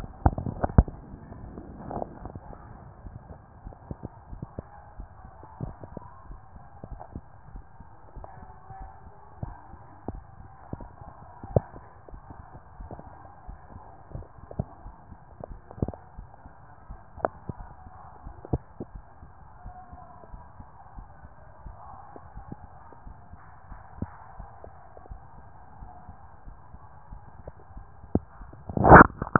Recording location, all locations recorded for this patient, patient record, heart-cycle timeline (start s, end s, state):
mitral valve (MV)
aortic valve (AV)+pulmonary valve (PV)+tricuspid valve (TV)+mitral valve (MV)
#Age: Child
#Sex: Male
#Height: 153.0 cm
#Weight: 53.4 kg
#Pregnancy status: False
#Murmur: Absent
#Murmur locations: nan
#Most audible location: nan
#Systolic murmur timing: nan
#Systolic murmur shape: nan
#Systolic murmur grading: nan
#Systolic murmur pitch: nan
#Systolic murmur quality: nan
#Diastolic murmur timing: nan
#Diastolic murmur shape: nan
#Diastolic murmur grading: nan
#Diastolic murmur pitch: nan
#Diastolic murmur quality: nan
#Outcome: Abnormal
#Campaign: 2014 screening campaign
0.00	18.94	unannotated
18.94	19.04	S1
19.04	19.20	systole
19.20	19.30	S2
19.30	19.64	diastole
19.64	19.74	S1
19.74	19.92	systole
19.92	20.00	S2
20.00	20.32	diastole
20.32	20.42	S1
20.42	20.58	systole
20.58	20.68	S2
20.68	20.96	diastole
20.96	21.08	S1
21.08	21.22	systole
21.22	21.32	S2
21.32	21.64	diastole
21.64	21.76	S1
21.76	21.92	systole
21.92	22.02	S2
22.02	22.36	diastole
22.36	29.39	unannotated